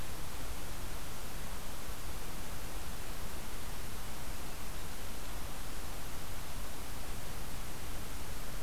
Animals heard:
forest ambience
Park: Acadia National Park